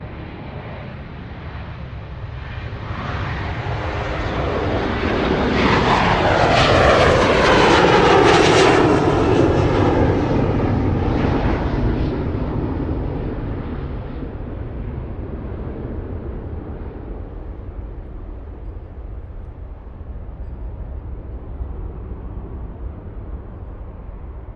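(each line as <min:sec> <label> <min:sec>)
0:00.0 An airplane flying in the distance. 0:02.9
0:02.8 The loud sound of an airplane taking off. 0:13.8
0:13.7 An airplane flying in the distance. 0:24.6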